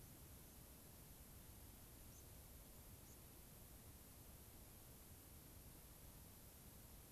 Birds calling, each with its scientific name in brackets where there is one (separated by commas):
White-crowned Sparrow (Zonotrichia leucophrys)